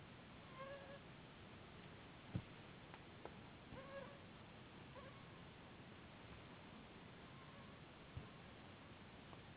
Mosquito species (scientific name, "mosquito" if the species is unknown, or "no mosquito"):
Anopheles gambiae s.s.